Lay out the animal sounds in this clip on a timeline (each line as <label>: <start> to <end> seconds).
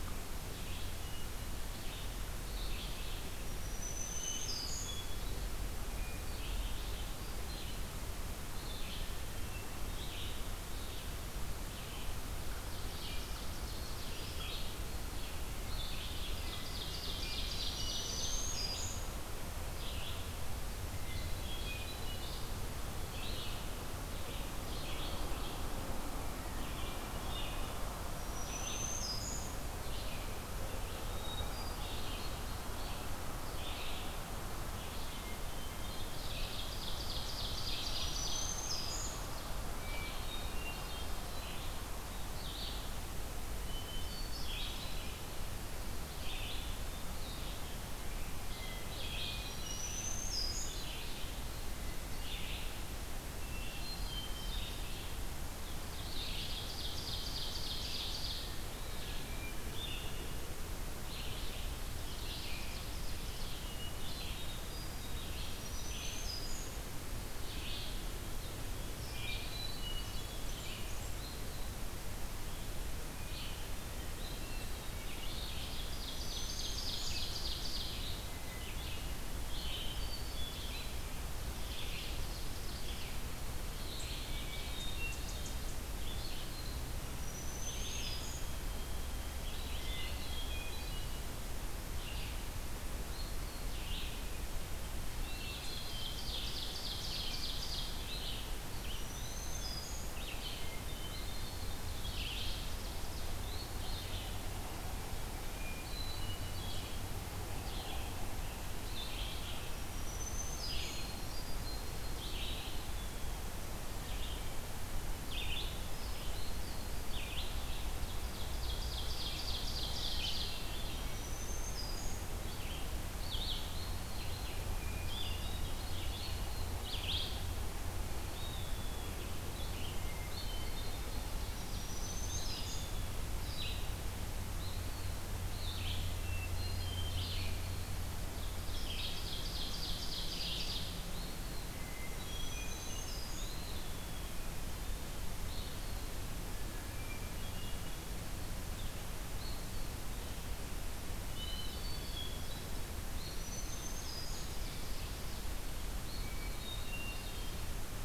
Red-eyed Vireo (Vireo olivaceus): 0.0 to 73.7 seconds
Black-throated Green Warbler (Setophaga virens): 3.2 to 5.1 seconds
Hermit Thrush (Catharus guttatus): 4.0 to 5.2 seconds
Hermit Thrush (Catharus guttatus): 5.9 to 6.9 seconds
Hermit Thrush (Catharus guttatus): 8.9 to 10.0 seconds
Ovenbird (Seiurus aurocapilla): 12.4 to 14.6 seconds
Ovenbird (Seiurus aurocapilla): 15.7 to 18.7 seconds
Hermit Thrush (Catharus guttatus): 16.4 to 18.4 seconds
Black-throated Green Warbler (Setophaga virens): 17.4 to 19.2 seconds
Hermit Thrush (Catharus guttatus): 20.9 to 22.6 seconds
Hermit Thrush (Catharus guttatus): 26.5 to 28.0 seconds
Black-throated Green Warbler (Setophaga virens): 28.0 to 29.6 seconds
Hermit Thrush (Catharus guttatus): 30.8 to 32.5 seconds
Hermit Thrush (Catharus guttatus): 35.0 to 36.1 seconds
Ovenbird (Seiurus aurocapilla): 35.7 to 39.7 seconds
Black-throated Green Warbler (Setophaga virens): 37.6 to 39.4 seconds
Hermit Thrush (Catharus guttatus): 39.8 to 41.2 seconds
Hermit Thrush (Catharus guttatus): 43.4 to 45.2 seconds
Hermit Thrush (Catharus guttatus): 48.4 to 50.0 seconds
Black-throated Green Warbler (Setophaga virens): 49.2 to 50.8 seconds
Hermit Thrush (Catharus guttatus): 53.0 to 54.9 seconds
Ovenbird (Seiurus aurocapilla): 55.9 to 58.5 seconds
Hermit Thrush (Catharus guttatus): 58.9 to 59.7 seconds
Ovenbird (Seiurus aurocapilla): 61.7 to 63.9 seconds
Hermit Thrush (Catharus guttatus): 63.6 to 65.3 seconds
Black-throated Green Warbler (Setophaga virens): 65.0 to 66.9 seconds
Hermit Thrush (Catharus guttatus): 69.0 to 70.6 seconds
Blackburnian Warbler (Setophaga fusca): 69.9 to 71.4 seconds
Hermit Thrush (Catharus guttatus): 73.2 to 73.9 seconds
Eastern Wood-Pewee (Contopus virens): 74.1 to 75.3 seconds
Ovenbird (Seiurus aurocapilla): 74.8 to 78.2 seconds
Red-eyed Vireo (Vireo olivaceus): 74.9 to 132.8 seconds
Black-throated Green Warbler (Setophaga virens): 75.9 to 77.3 seconds
Hermit Thrush (Catharus guttatus): 78.2 to 79.3 seconds
Hermit Thrush (Catharus guttatus): 79.7 to 81.0 seconds
Ovenbird (Seiurus aurocapilla): 81.1 to 83.1 seconds
Hermit Thrush (Catharus guttatus): 84.2 to 85.4 seconds
Black-throated Green Warbler (Setophaga virens): 87.0 to 88.6 seconds
Hermit Thrush (Catharus guttatus): 89.8 to 91.3 seconds
Eastern Wood-Pewee (Contopus virens): 89.9 to 90.5 seconds
Hermit Thrush (Catharus guttatus): 94.7 to 96.2 seconds
Eastern Wood-Pewee (Contopus virens): 95.2 to 96.2 seconds
Ovenbird (Seiurus aurocapilla): 95.4 to 97.9 seconds
Black-throated Green Warbler (Setophaga virens): 98.6 to 100.3 seconds
Eastern Wood-Pewee (Contopus virens): 99.0 to 100.1 seconds
Hermit Thrush (Catharus guttatus): 100.3 to 102.0 seconds
Ovenbird (Seiurus aurocapilla): 101.5 to 103.5 seconds
Hermit Thrush (Catharus guttatus): 105.6 to 107.0 seconds
Black-throated Green Warbler (Setophaga virens): 109.5 to 111.1 seconds
Hermit Thrush (Catharus guttatus): 110.8 to 112.2 seconds
Eastern Wood-Pewee (Contopus virens): 112.4 to 113.5 seconds
Ovenbird (Seiurus aurocapilla): 118.0 to 120.8 seconds
Hermit Thrush (Catharus guttatus): 120.2 to 121.3 seconds
Black-throated Green Warbler (Setophaga virens): 120.8 to 122.3 seconds
Hermit Thrush (Catharus guttatus): 124.7 to 126.2 seconds
Eastern Wood-Pewee (Contopus virens): 128.1 to 129.3 seconds
Hermit Thrush (Catharus guttatus): 129.7 to 131.4 seconds
Ovenbird (Seiurus aurocapilla): 131.1 to 132.8 seconds
Black-throated Green Warbler (Setophaga virens): 131.4 to 132.9 seconds
Eastern Wood-Pewee (Contopus virens): 132.2 to 132.9 seconds
Red-eyed Vireo (Vireo olivaceus): 133.3 to 158.0 seconds
Eastern Wood-Pewee (Contopus virens): 134.4 to 135.3 seconds
Hermit Thrush (Catharus guttatus): 136.0 to 137.5 seconds
Ovenbird (Seiurus aurocapilla): 138.3 to 141.0 seconds
Eastern Wood-Pewee (Contopus virens): 140.9 to 141.6 seconds
Hermit Thrush (Catharus guttatus): 141.6 to 143.2 seconds
Black-throated Green Warbler (Setophaga virens): 142.0 to 143.6 seconds
Eastern Wood-Pewee (Contopus virens): 143.2 to 144.4 seconds
Hermit Thrush (Catharus guttatus): 146.6 to 148.1 seconds
Hermit Thrush (Catharus guttatus): 151.2 to 152.8 seconds
Eastern Wood-Pewee (Contopus virens): 151.2 to 152.1 seconds
Black-throated Green Warbler (Setophaga virens): 153.1 to 154.5 seconds
Ovenbird (Seiurus aurocapilla): 153.5 to 155.5 seconds
Hermit Thrush (Catharus guttatus): 156.1 to 157.6 seconds